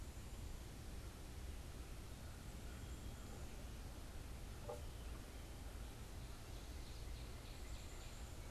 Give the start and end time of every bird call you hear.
[6.50, 8.10] Northern Cardinal (Cardinalis cardinalis)
[7.20, 8.50] Black-capped Chickadee (Poecile atricapillus)

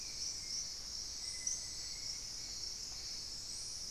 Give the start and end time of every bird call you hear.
[0.00, 3.12] Thrush-like Wren (Campylorhynchus turdinus)
[0.00, 3.90] Hauxwell's Thrush (Turdus hauxwelli)

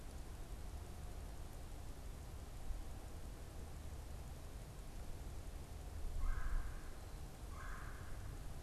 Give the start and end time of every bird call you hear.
[6.07, 8.57] Red-bellied Woodpecker (Melanerpes carolinus)

